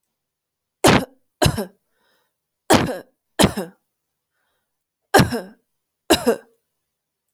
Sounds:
Cough